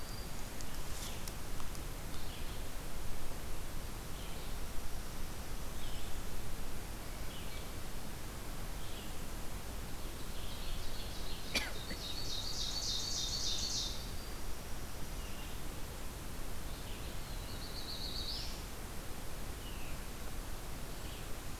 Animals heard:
Black-throated Green Warbler (Setophaga virens), Black-throated Blue Warbler (Setophaga caerulescens), Ovenbird (Seiurus aurocapilla), Red-eyed Vireo (Vireo olivaceus)

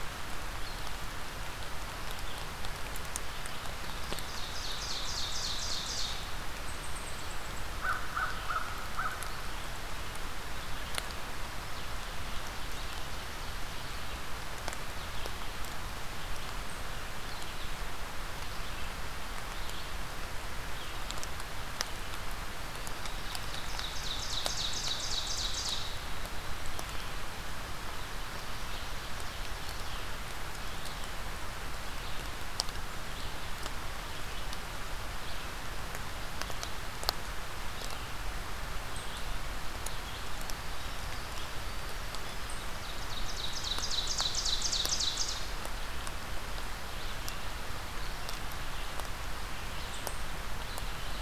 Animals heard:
American Crow (Corvus brachyrhynchos), Ovenbird (Seiurus aurocapilla), Red-eyed Vireo (Vireo olivaceus)

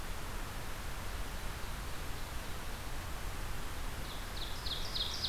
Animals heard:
Ovenbird (Seiurus aurocapilla)

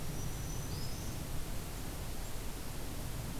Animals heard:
Black-throated Green Warbler (Setophaga virens)

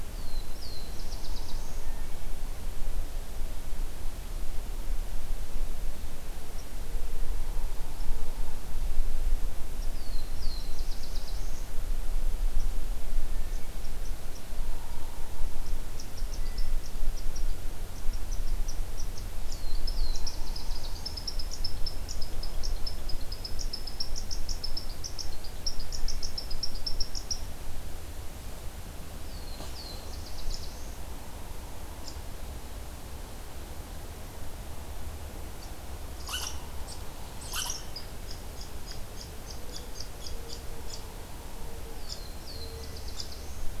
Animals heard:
Downy Woodpecker (Dryobates pubescens), Black-throated Blue Warbler (Setophaga caerulescens), Mourning Dove (Zenaida macroura), unidentified call, Hermit Thrush (Catharus guttatus)

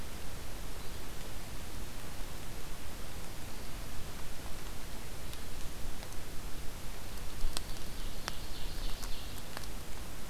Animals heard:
Yellow-bellied Flycatcher (Empidonax flaviventris), Ovenbird (Seiurus aurocapilla)

